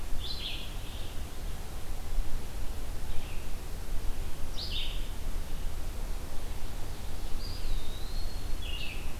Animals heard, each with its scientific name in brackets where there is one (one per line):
Eastern Wood-Pewee (Contopus virens)
Blue-headed Vireo (Vireo solitarius)